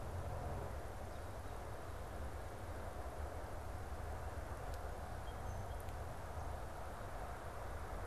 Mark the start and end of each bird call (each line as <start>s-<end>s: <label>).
5.0s-6.2s: Song Sparrow (Melospiza melodia)